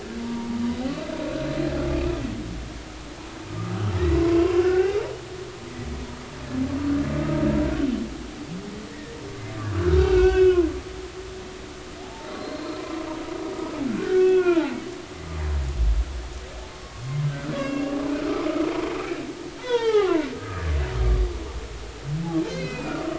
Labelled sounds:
0.2	0.6	humpback whale, 0.83 to 0.99 kHz
4.2	5.1	humpback whale, 0.80 to 2.1 kHz
8.9	10.7	humpback whale, 1.3 to 3.5 kHz
12.0	12.8	humpback whale, 0.80 to 4.3 kHz
13.9	14.8	humpback whale, 0.80 to 3.4 kHz
17.5	18.7	humpback whale, 1.2 to 2.8 kHz
19.6	20.7	humpback whale, 0.80 to 5.0 kHz
22.5	23.0	humpback whale, 2.0 to 4.8 kHz

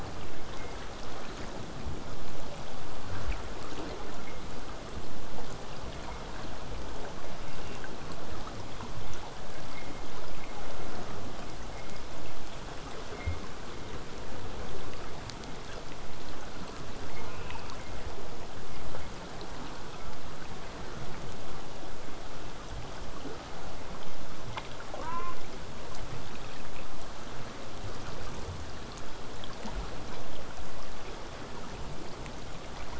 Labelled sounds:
0.0	5.0	vessel noise, 0 to 8.0 kHz
7.4	7.8	killer whale, southern resident, J pod, call S04, 1.7 to 2.9 kHz
17.3	17.8	killer whale, southern resident, J pod, call S04, 2.1 to 3.1 kHz
19.5	20.0	killer whale, southern resident, J pod, call S04, 0.18 to 1.3 kHz
24.9	25.4	killer whale, southern resident, J pod, call S04, 0.62 to 3.0 kHz

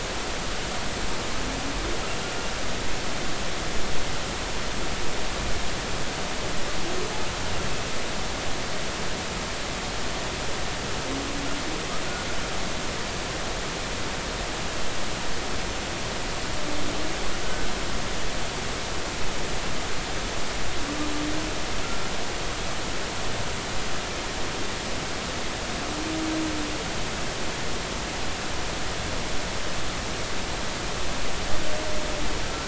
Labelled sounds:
17.4	17.7	humpback whale, 1.5 to 1.6 kHz

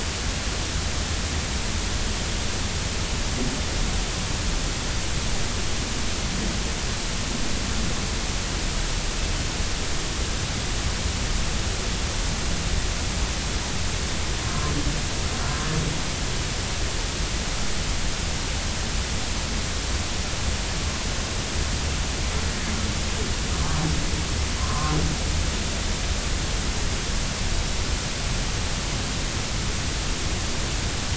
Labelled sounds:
24.6	25.0	humpback whale, 0.96 to 1.3 kHz

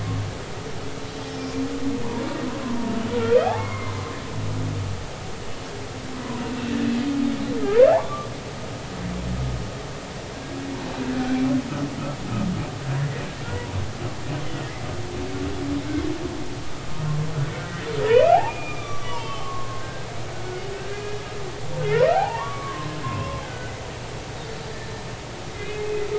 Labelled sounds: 2.6	2.9	humpback whale, 0.90 to 1.1 kHz
3.5	3.9	humpback whale, 0.96 to 2.2 kHz
7.9	8.3	humpback whale, 0.80 to 1.2 kHz
14.5	14.8	humpback whale, 0.90 to 0.99 kHz
17.7	18.4	humpback whale, 0.90 to 2.8 kHz
18.7	21.3	humpback whale, 0.86 to 6.1 kHz
21.9	23.8	humpback whale, 0.80 to 2.1 kHz
25.5	25.9	humpback whale, 2.0 to 2.2 kHz

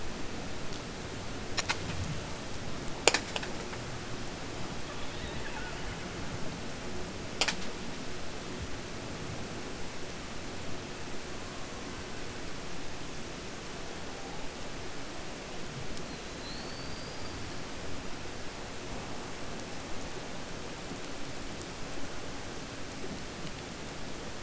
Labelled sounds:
16.3	17.3	killer whale, 4.0 to 5.0 kHz

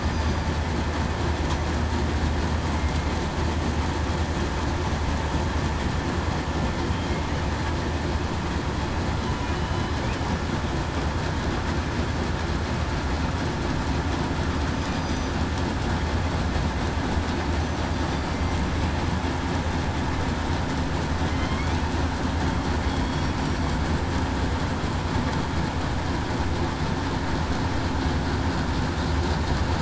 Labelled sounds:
0.0	0.5	killer whale, southern resident, 4.7 to 4.9 kHz
9.5	9.9	killer whale, southern resident, 2.95 to 3.05 kHz
14.9	15.3	killer whale, southern resident, 4.7 to 6.1 kHz
21.3	21.7	killer whale, southern resident, 3.1 to 3.5 kHz

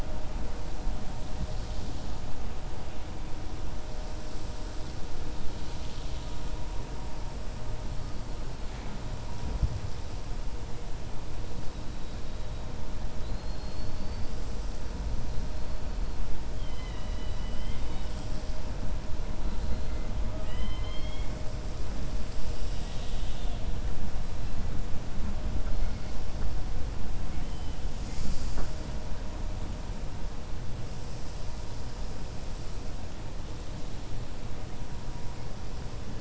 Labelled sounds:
13.1	14.3	killer whale, 3.9 to 5.4 kHz
20.2	21.3	killer whale, 0.61 to 4.3 kHz
27.3	27.7	killer whale, 2.1 to 3.1 kHz

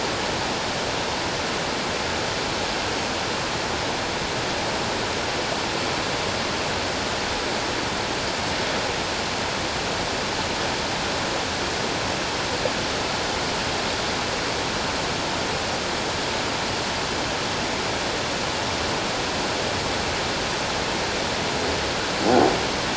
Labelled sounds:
22.2	22.5	croaking sound likely from a nearby submerged object, 0.78 to 0.84 kHz

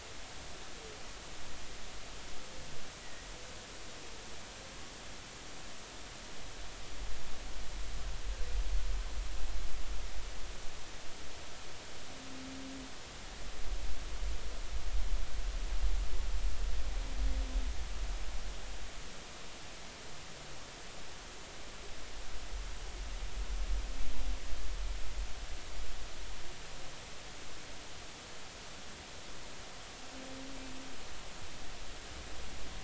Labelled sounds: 3.0	3.3	humpback whale, 1.8 to 2.0 kHz

